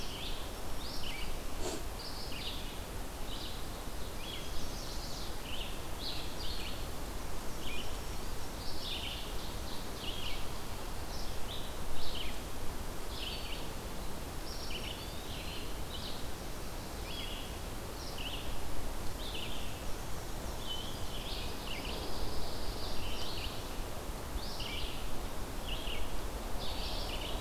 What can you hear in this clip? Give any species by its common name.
Red-eyed Vireo, Chestnut-sided Warbler, Black-throated Green Warbler, Ovenbird, Eastern Wood-Pewee, Black-and-white Warbler, Pine Warbler